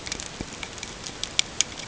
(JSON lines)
{"label": "ambient", "recorder": "HydroMoth"}